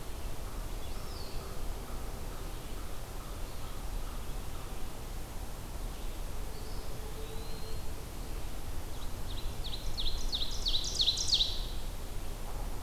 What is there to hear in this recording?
Eastern Wood-Pewee, Ovenbird